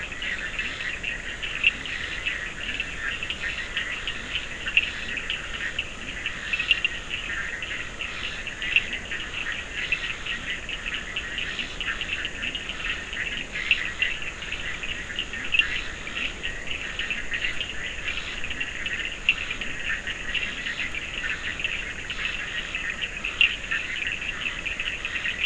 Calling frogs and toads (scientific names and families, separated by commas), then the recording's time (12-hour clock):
Boana bischoffi (Hylidae), Scinax perereca (Hylidae), Sphaenorhynchus surdus (Hylidae)
10:00pm